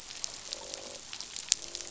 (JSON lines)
{"label": "biophony, croak", "recorder": "SoundTrap 500"}